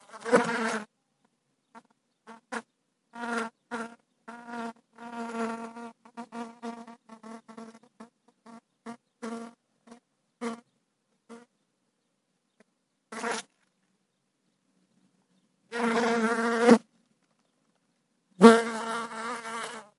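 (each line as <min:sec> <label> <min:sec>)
0:00.0 A mosquito buzzing intermittently nearby in a quiet room. 0:20.0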